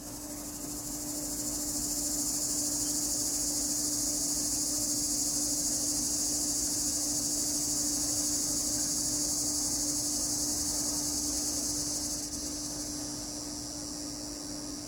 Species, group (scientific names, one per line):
Neotibicen linnei
Cicadidae